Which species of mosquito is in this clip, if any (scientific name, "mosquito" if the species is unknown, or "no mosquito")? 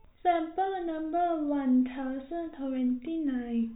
no mosquito